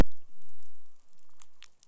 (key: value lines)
label: biophony
recorder: SoundTrap 500